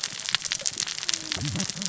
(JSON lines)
{"label": "biophony, cascading saw", "recorder": "SoundTrap 600 or HydroMoth"}